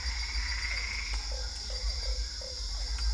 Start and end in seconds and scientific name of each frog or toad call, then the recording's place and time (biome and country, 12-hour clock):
0.0	1.2	Boana albopunctata
0.0	3.1	Dendropsophus cruzi
0.0	3.1	Physalaemus cuvieri
1.2	2.6	Boana lundii
Cerrado, Brazil, 8:00pm